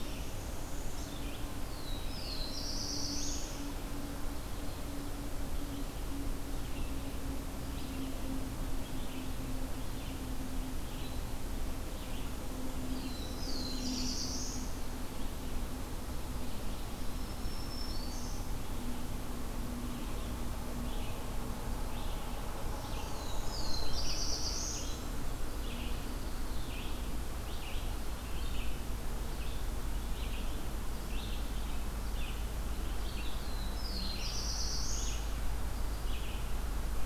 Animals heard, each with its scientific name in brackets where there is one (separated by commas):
Black-throated Blue Warbler (Setophaga caerulescens), Black-throated Green Warbler (Setophaga virens), Northern Parula (Setophaga americana), Red-eyed Vireo (Vireo olivaceus)